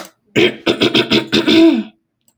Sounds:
Throat clearing